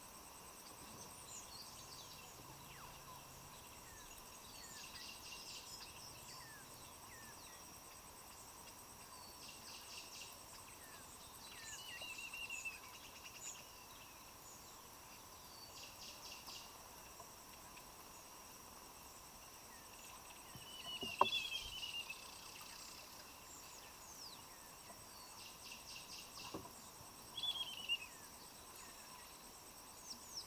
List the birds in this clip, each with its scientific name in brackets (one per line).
Spectacled Weaver (Ploceus ocularis)
African Emerald Cuckoo (Chrysococcyx cupreus)